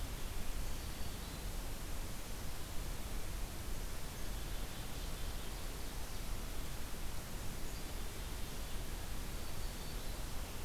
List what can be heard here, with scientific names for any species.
Setophaga virens, Sitta canadensis